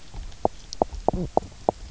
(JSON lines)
{"label": "biophony, knock croak", "recorder": "SoundTrap 300"}